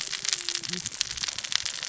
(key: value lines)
label: biophony, cascading saw
recorder: SoundTrap 600 or HydroMoth